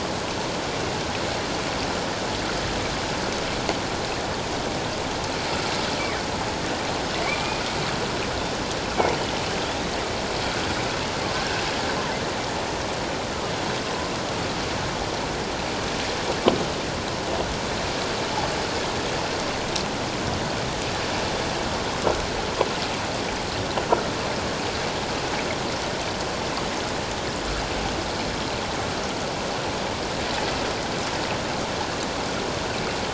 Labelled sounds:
7.2	7.6	killer whale, northern resident, G clan, 1.1 to 2.5 kHz

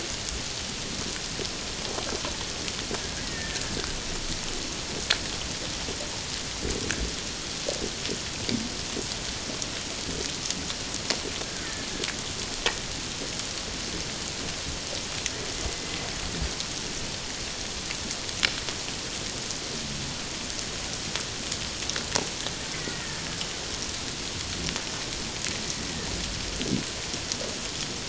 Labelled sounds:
3.2	3.6	killer whale, Bigg's (transient), 1.7 to 2.0 kHz
11.6	11.9	killer whale, Bigg's (transient), 1.7 to 2.1 kHz
22.7	23.2	killer whale, Bigg's (transient), 1.7 to 2.2 kHz

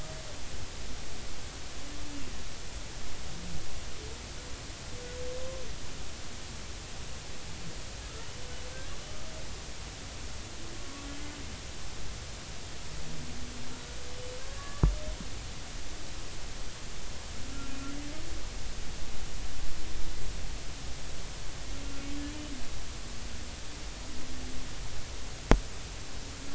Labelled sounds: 10.8	11.1	humpback whale, 1.1 to 1.2 kHz
14.5	14.8	humpback whale, 1.1 to 1.8 kHz

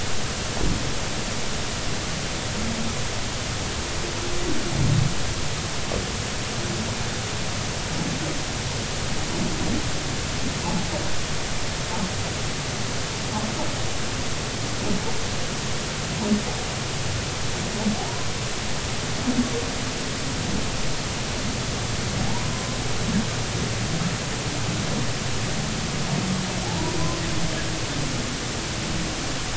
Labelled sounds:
18.0	18.3	humpback whale, 0.80 to 1.1 kHz
22.2	22.8	humpback whale, 0.80 to 1.1 kHz

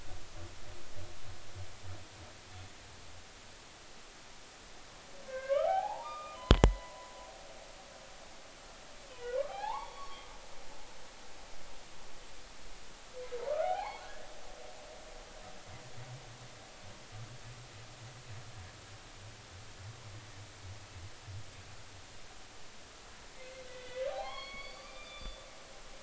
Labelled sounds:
5.3	7.1	humpback whale, 0.80 to 3.7 kHz
9.1	10.3	humpback whale, 0.80 to 4.5 kHz
13.4	14.1	humpback whale, 0.80 to 2.6 kHz
15.0	15.3	humpback whale, 1.5 to 1.8 kHz
23.4	25.4	humpback whale, 0.80 to 4.8 kHz

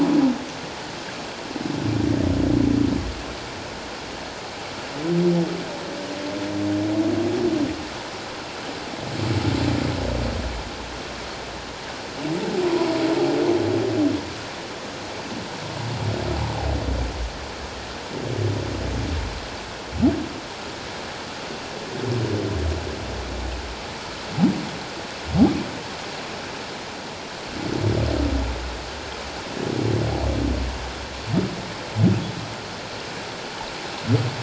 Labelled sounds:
12.7	12.9	humpback whale, 0.91 to 1.0 kHz

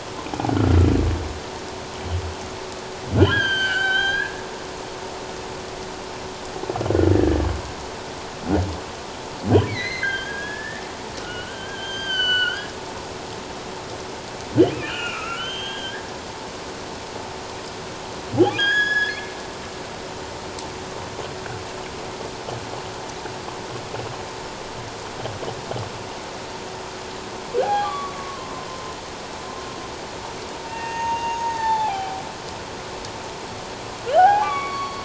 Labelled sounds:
3.2	4.3	humpback whale, 0.78 to 6.2 kHz
7.1	7.4	humpback whale, 1.6 to 1.8 kHz
9.7	10.8	humpback whale, 1.5 to 6.3 kHz
11.2	12.7	humpback whale, 1.3 to 6.4 kHz
14.7	16.1	humpback whale, 1.2 to 6.5 kHz
18.5	19.3	humpback whale, 1.5 to 6.8 kHz
27.6	28.5	humpback whale, 0.78 to 1.7 kHz
30.6	32.2	humpback whale, 0.78 to 6.6 kHz
34.2	35.0	humpback whale, 0.78 to 4.6 kHz

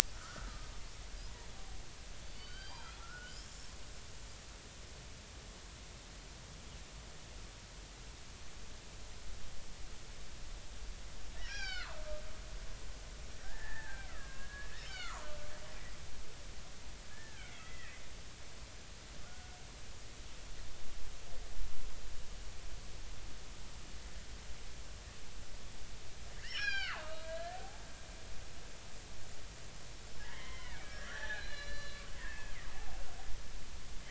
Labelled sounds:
0.1	0.7	killer whale, Bigg's (transient), 1.1 to 1.5 kHz
2.3	3.5	killer whale, Bigg's (transient), 1.3 to 4.9 kHz
11.4	12.0	killer whale, Bigg's (transient), 0.80 to 5.8 kHz
13.4	15.4	killer whale, Bigg's (transient), 0.80 to 4.7 kHz
17.1	18.0	killer whale, Bigg's (transient), 1.4 to 2.5 kHz
19.2	19.6	killer whale, Bigg's (transient), 1.3 to 1.5 kHz
26.4	27.8	killer whale, Bigg's (transient), 0.80 to 5.7 kHz
30.2	33.0	killer whale, Bigg's (transient), 0.80 to 6.0 kHz

